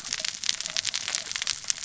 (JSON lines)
{"label": "biophony, cascading saw", "recorder": "SoundTrap 600 or HydroMoth"}